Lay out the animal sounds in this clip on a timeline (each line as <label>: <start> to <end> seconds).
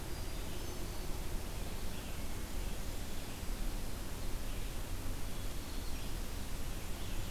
Red-eyed Vireo (Vireo olivaceus): 0.0 to 7.3 seconds
Hermit Thrush (Catharus guttatus): 0.0 to 1.2 seconds